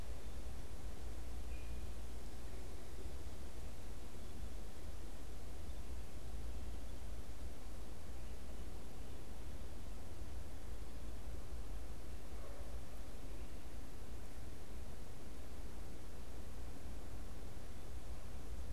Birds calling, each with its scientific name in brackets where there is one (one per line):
Great Crested Flycatcher (Myiarchus crinitus)